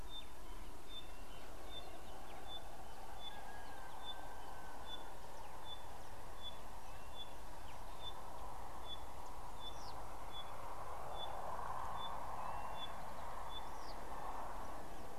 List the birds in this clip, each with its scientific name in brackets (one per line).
Pygmy Batis (Batis perkeo)
Blue-naped Mousebird (Urocolius macrourus)